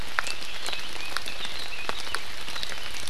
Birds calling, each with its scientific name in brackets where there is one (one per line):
Red-billed Leiothrix (Leiothrix lutea)